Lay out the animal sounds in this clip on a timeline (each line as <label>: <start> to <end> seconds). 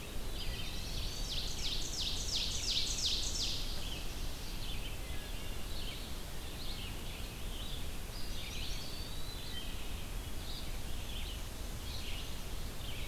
Red-eyed Vireo (Vireo olivaceus): 0.0 to 13.1 seconds
Eastern Wood-Pewee (Contopus virens): 0.0 to 1.3 seconds
Ovenbird (Seiurus aurocapilla): 0.9 to 3.5 seconds
Wood Thrush (Hylocichla mustelina): 4.8 to 5.7 seconds
Eastern Wood-Pewee (Contopus virens): 7.8 to 9.2 seconds
Chestnut-sided Warbler (Setophaga pensylvanica): 8.1 to 9.0 seconds
Wood Thrush (Hylocichla mustelina): 9.2 to 9.9 seconds